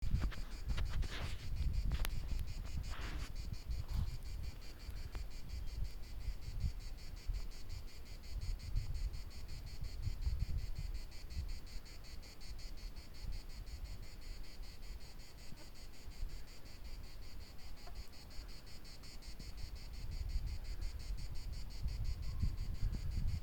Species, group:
Cicada orni
Cicadidae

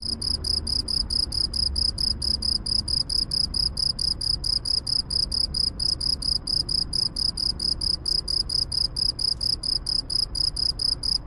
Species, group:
Gryllus veletis
Orthoptera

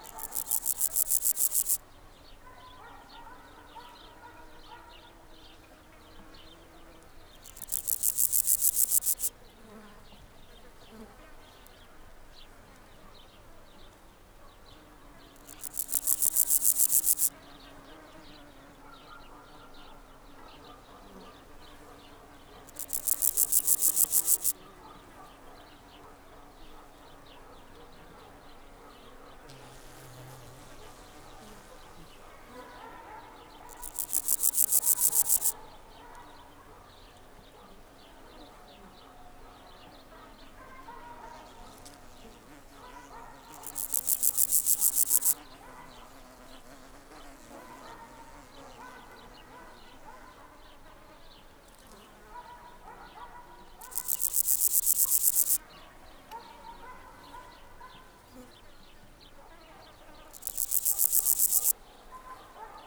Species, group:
Pseudochorthippus parallelus
Orthoptera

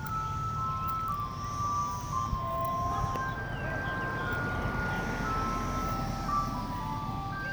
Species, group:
Magicicada cassini
Cicadidae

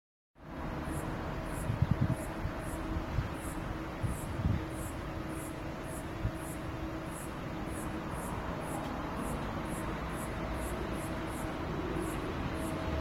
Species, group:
Cicadatra atra
Cicadidae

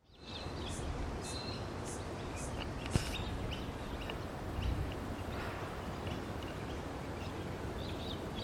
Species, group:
Yoyetta repetens
Cicadidae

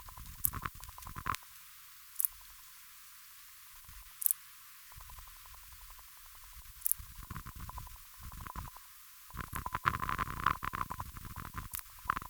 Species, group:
Parasteropleurus martorellii
Orthoptera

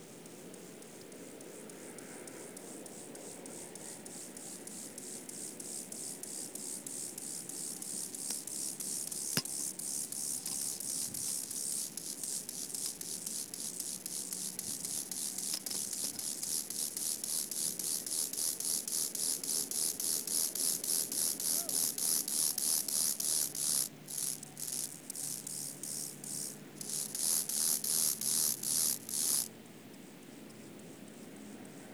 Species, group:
Chorthippus mollis
Orthoptera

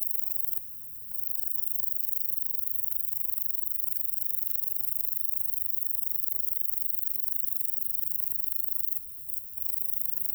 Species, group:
Bicolorana bicolor
Orthoptera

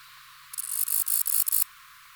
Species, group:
Bicolorana bicolor
Orthoptera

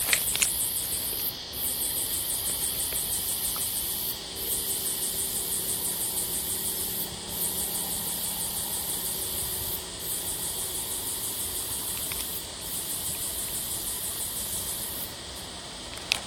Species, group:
Yoyetta regalis
Cicadidae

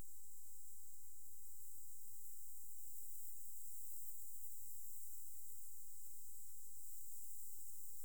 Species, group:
Conocephalus fuscus
Orthoptera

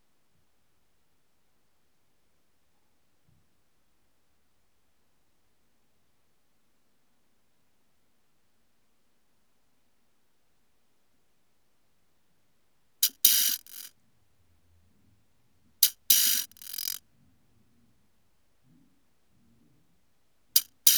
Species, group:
Arcyptera tornosi
Orthoptera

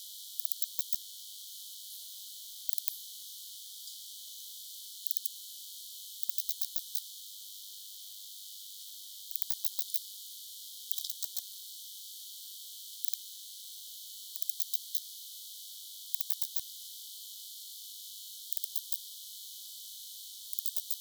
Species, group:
Poecilimon deplanatus
Orthoptera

